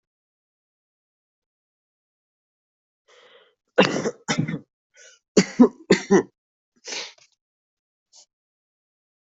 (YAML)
expert_labels:
- quality: ok
  cough_type: wet
  dyspnea: false
  wheezing: false
  stridor: false
  choking: false
  congestion: true
  nothing: false
  diagnosis: upper respiratory tract infection
  severity: mild
gender: female
respiratory_condition: false
fever_muscle_pain: false
status: COVID-19